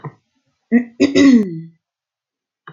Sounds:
Throat clearing